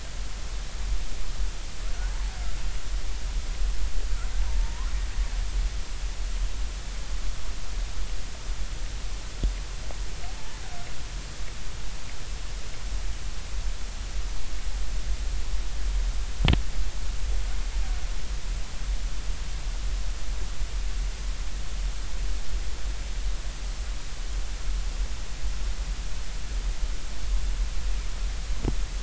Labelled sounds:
4.5	4.9	killer whale, northern resident, R clan, call N33, 0.86 to 1.1 kHz
10.3	10.6	killer whale, northern resident, R clan, call N33, 0.86 to 1.1 kHz

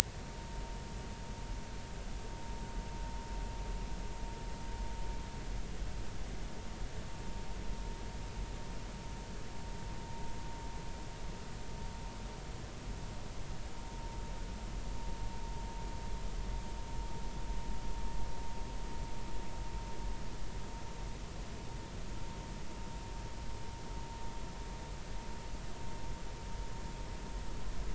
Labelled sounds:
0.4	0.6	vessel noise, 0.90 to 0.99 kHz

